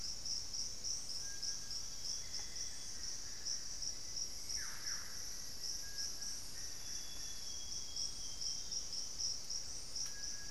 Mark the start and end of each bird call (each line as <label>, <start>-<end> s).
Scale-breasted Woodpecker (Celeus grammicus), 0.0-0.8 s
Bartlett's Tinamou (Crypturellus bartletti), 0.0-10.5 s
Amazonian Barred-Woodcreeper (Dendrocolaptes certhia), 2.1-4.0 s
Black-faced Antthrush (Formicarius analis), 3.8-6.0 s
Solitary Black Cacique (Cacicus solitarius), 4.2-5.4 s
Amazonian Grosbeak (Cyanoloxia rothschildii), 6.6-9.1 s